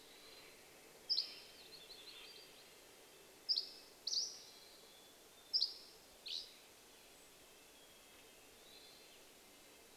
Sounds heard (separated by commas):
Hermit Thrush call, warbler song, Red-breasted Nuthatch song, Steller's Jay call, Dusky Flycatcher song, Mountain Chickadee song